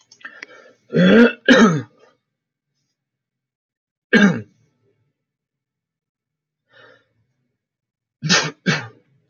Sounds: Cough